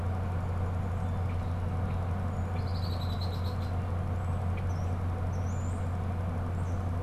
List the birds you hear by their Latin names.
Agelaius phoeniceus, Sturnus vulgaris